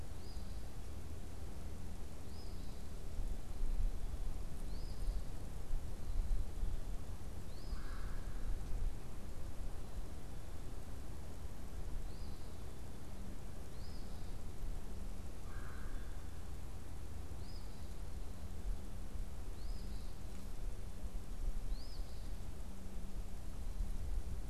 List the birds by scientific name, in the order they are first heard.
Sayornis phoebe, Melanerpes carolinus